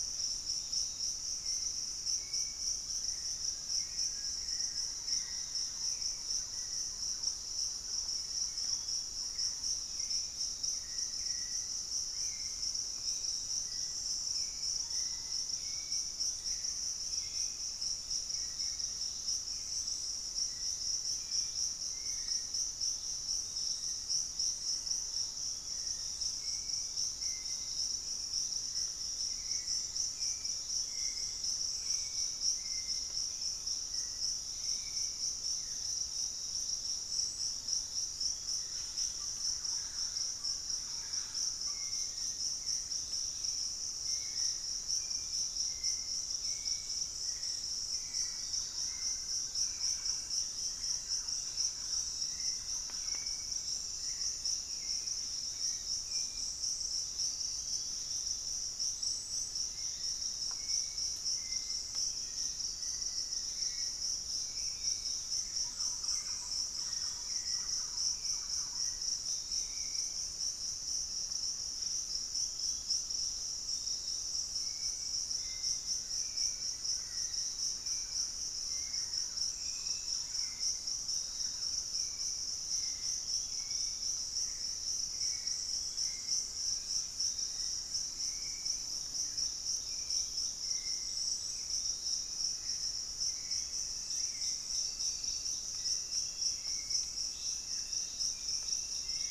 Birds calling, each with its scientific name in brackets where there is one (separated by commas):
Fasciated Antshrike (Cymbilaimus lineatus), Hauxwell's Thrush (Turdus hauxwelli), Ringed Kingfisher (Megaceryle torquata), unidentified bird, Thrush-like Wren (Campylorhynchus turdinus), Black-faced Antthrush (Formicarius analis), Piratic Flycatcher (Legatus leucophaius)